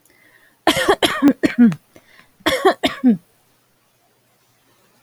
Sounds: Cough